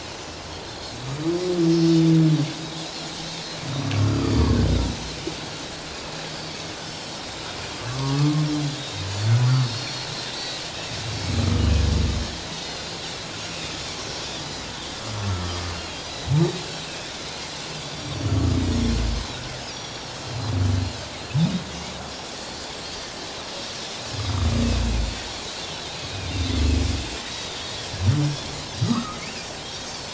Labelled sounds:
1.6	1.9	Pacific white-sided dolphin, 4.9 to 5.5 kHz
4.0	4.5	humpback whale, 1.1 to 4.9 kHz
6.3	6.6	Pacific white-sided dolphin, 4.5 to 4.7 kHz
7.1	7.4	Pacific white-sided dolphin, 3.6 to 3.8 kHz
7.9	8.4	humpback whale, 0.91 to 1.2 kHz
8.8	10.6	Pacific white-sided dolphin, 3.7 to 5.3 kHz
10.3	10.6	humpback whale, 1.9 to 2.0 kHz
11.4	11.7	humpback whale, 1.2 to 1.3 kHz
12.5	12.9	Pacific white-sided dolphin, 3.5 to 3.8 kHz
13.5	13.8	Pacific white-sided dolphin, 2.3 to 2.6 kHz
14.4	14.7	Pacific white-sided dolphin, 3.8 to 4.1 kHz
15.4	15.7	Pacific white-sided dolphin, 4.6 to 5.1 kHz
16.0	16.3	Pacific white-sided dolphin, 3.8 to 4.1 kHz
17.8	18.3	Pacific white-sided dolphin, 3.4 to 7.1 kHz
19.7	20.2	Pacific white-sided dolphin, 3.2 to 5.9 kHz
22.1	22.6	Pacific white-sided dolphin, 4.2 to 5.6 kHz
27.2	27.5	Pacific white-sided dolphin, 3.7 to 3.9 kHz
28.8	29.1	Pacific white-sided dolphin, 3.7 to 4.0 kHz
28.8	29.2	humpback whale, 1.0 to 1.4 kHz

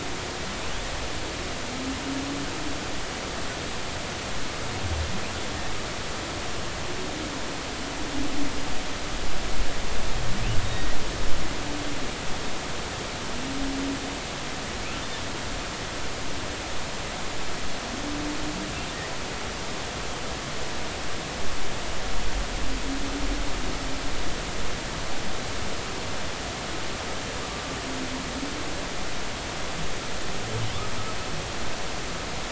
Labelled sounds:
10.6	11.0	humpback whale, 1.8 to 3.8 kHz

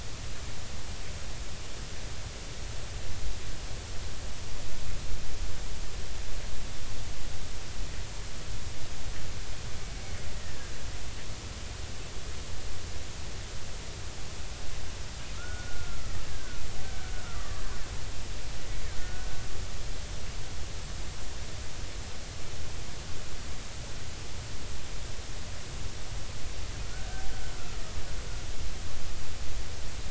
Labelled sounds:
10.0	10.7	killer whale, Bigg's (transient), 1.5 to 2.3 kHz
15.3	17.6	killer whale, Bigg's (transient), 1.1 to 1.8 kHz
18.9	19.4	killer whale, Bigg's (transient), 1.4 to 1.7 kHz
26.9	27.2	killer whale, Bigg's (transient), 1.4 to 1.7 kHz

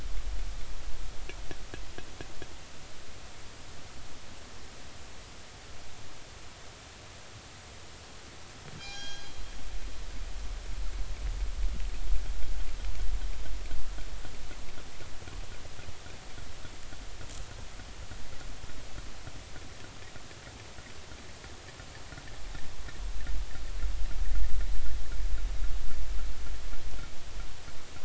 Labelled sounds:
8.8	9.3	killer whale, northern resident, G clan, call N24ii, 1.5 to 6.5 kHz

